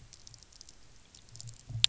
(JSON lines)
{"label": "anthrophony, boat engine", "recorder": "SoundTrap 300"}